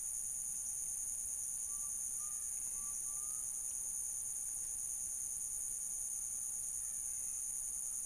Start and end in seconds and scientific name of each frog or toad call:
none